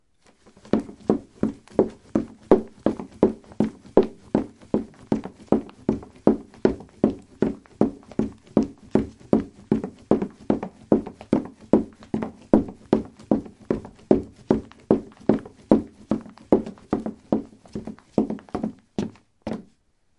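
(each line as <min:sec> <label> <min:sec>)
0:00.6 Footsteps on wood repeating at fixed intervals. 0:16.9
0:17.0 Footsteps on wood come to a stop. 0:20.2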